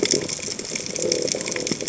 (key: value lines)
label: biophony
recorder: HydroMoth